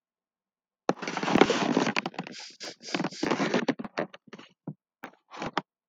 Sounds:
Sniff